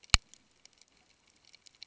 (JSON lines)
{"label": "ambient", "recorder": "HydroMoth"}